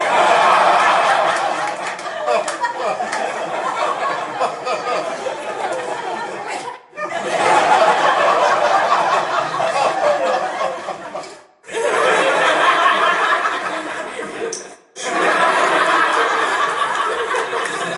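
An audience laughs energetically in waves with rhythmic bursts and brief pauses. 0:00.0 - 0:18.0

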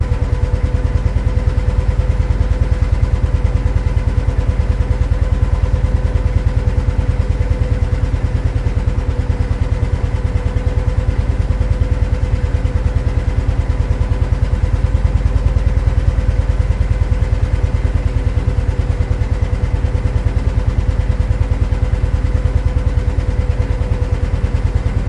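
A motor engine hums continuously at a low and steady volume. 0:00.0 - 0:25.1

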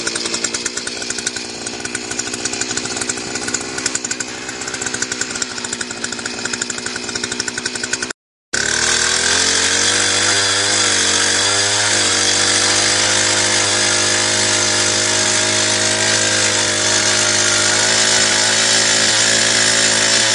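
A motor struggles to start, producing a low and irregular mechanical sound. 0:00.0 - 0:08.3
A chainsaw or drilling machine runs at high speed, producing a constant buzzing and metallic grinding sound in a harsh industrial setting. 0:08.5 - 0:20.3

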